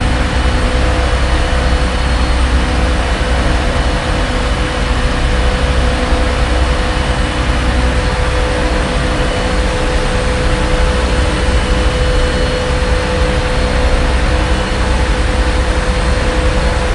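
0.0s A constant, high-pitched engine noise from a small boat is heard. 16.9s

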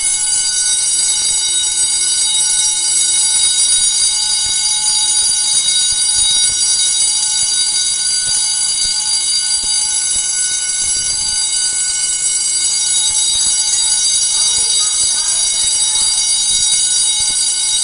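0.0s An alarm rings loudly in a steady pattern. 17.8s
14.1s People talking while a loud alarm clock rings. 16.2s

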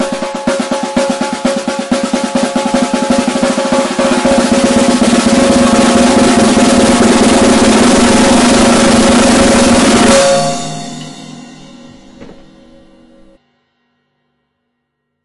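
0.0s A drum roll builds continuously in intensity with a smooth crescendo in a dry indoor setting. 10.1s
10.1s A cymbal crashes loudly with a sharp metallic impact and shimmering decay. 13.4s

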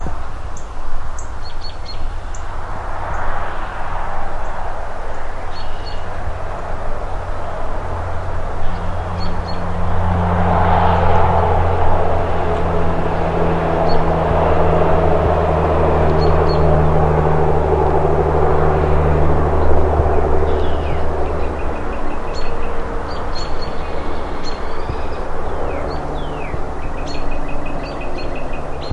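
0.0s A faint, rhythmic whooshing sound as a car passes by. 28.9s
0.9s A bird tweets sharply. 3.0s
5.6s A bird tweets crisply. 6.5s
9.2s A bird chirps crisply. 10.0s
13.8s A bird chirps crisply. 14.6s
16.2s A bird chirps brightly. 17.1s
20.2s Birds trill brightly with pauses. 28.9s

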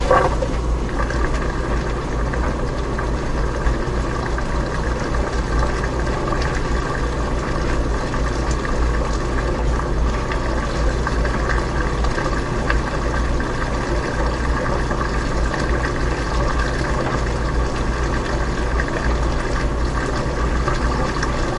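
0.0s A washing machine runs continuously. 21.6s

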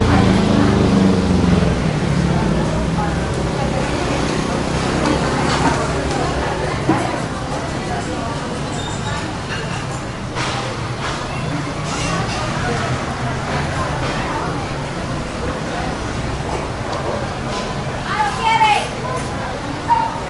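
4.8s People are speaking loudly. 5.7s
18.1s A woman speaks to the manager in a restaurant. 19.0s

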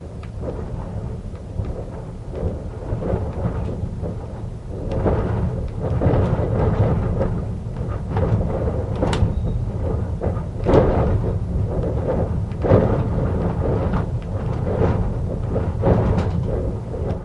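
0.0s Strong wind whooshing in a steady pattern. 17.2s

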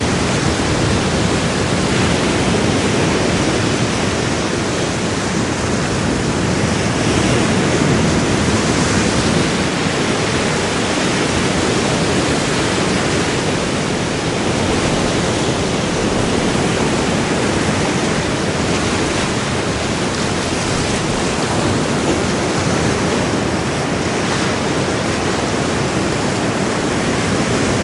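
0.0s Waves rolling rhythmically on a beach. 27.8s

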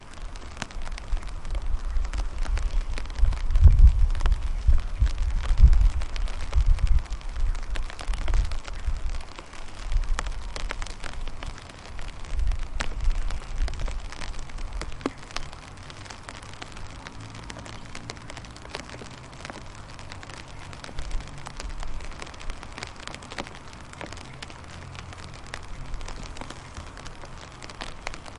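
0.0s Constant high-frequency crackling of rain. 28.4s
2.3s Unsteady low-pitched rumbling wind sounds that grow louder and softer. 9.4s
9.5s Light, unsteady, low-pitched rumbling wind sounds. 15.1s

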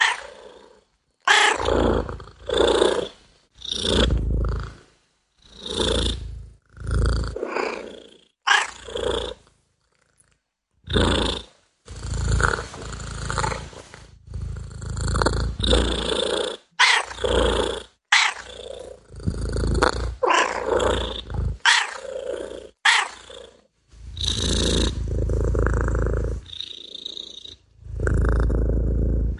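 0.0s A cat purrs calmly. 0.6s
1.3s A cat purrs peacefully. 4.8s
5.7s A cat purrs softly. 9.5s
10.9s A cat purrs softly. 16.6s
16.8s A cat meows. 17.1s
17.1s A cat is purring. 22.8s
18.1s A cat meows. 18.5s
20.1s A cat meows. 20.7s
21.6s A cat meows. 22.0s
22.8s A cat meows. 23.5s
24.0s A cat purrs peacefully. 29.4s

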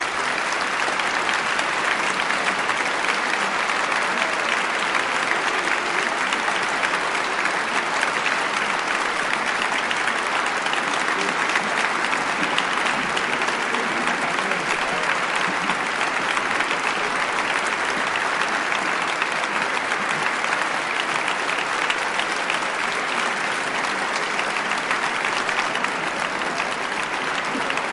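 0.0s A large crowd claps continuously. 27.9s

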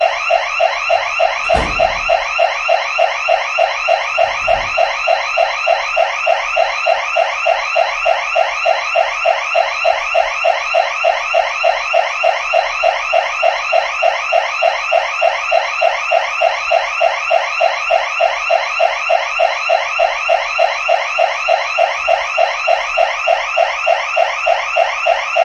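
0.0s An alarm is wailing. 25.4s
1.4s A door slams shut. 1.7s

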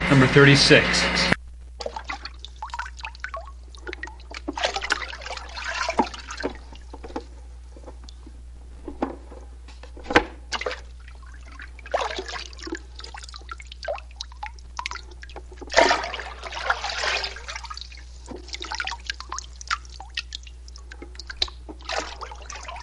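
0.0s A male voice loudly pronounces a phrase. 1.4s
1.8s The loud and clear continuous noise of scooped up and dripping water. 7.2s
6.0s A loud and clear sound of wood being hit and scratched. 10.5s
10.5s Loud and clear continuous noise of scooping, dripping, and splashing water. 22.8s
12.5s A faint sound of wood being hit and scratched. 13.1s
15.2s A faint sound of wood being hit and scratched. 15.8s
15.7s A loud, clear splash of water. 18.0s
18.2s A faint sound of wood being hit and scratched. 18.7s
21.1s A faint sound of wood being hit and scratched. 21.9s

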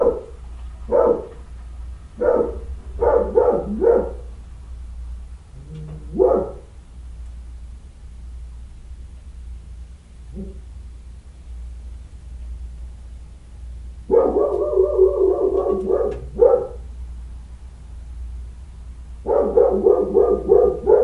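0.0s A dog barks. 0.3s
0.0s A soft, low-pitched rumbling noise. 21.0s
0.9s A dog barks. 1.2s
2.2s A dog barks. 4.3s
6.1s A dog barks. 6.7s
10.3s A dog barks softly. 10.8s
14.1s A dog barks. 16.9s
19.2s A dog barks. 21.0s

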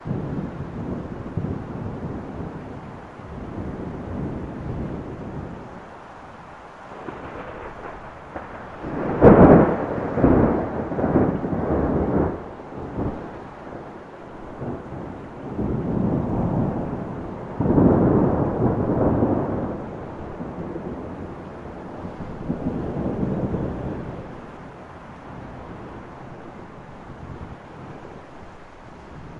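0.0s Distant low, rumbling thunder from a thunderstorm. 29.4s
9.1s A loud thunderclap. 12.4s
17.5s A loud thunderclap. 19.7s

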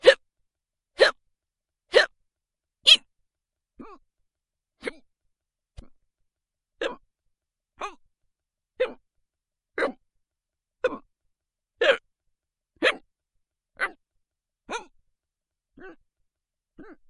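0.0s A person hiccups repeatedly in a pattern. 1.2s
1.9s A person hiccups repeatedly in a pattern. 3.0s
3.8s A person hiccups once. 5.0s
5.7s A muffled thump. 6.0s
6.8s A person hiccups repeatedly in a pattern. 8.0s
8.8s A person hiccups repeatedly in a pattern. 10.0s
10.8s A person hiccups repeatedly in a pattern. 14.8s
15.7s A person makes muffled hiccup sounds repeatedly. 17.1s

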